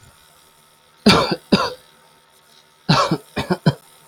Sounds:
Cough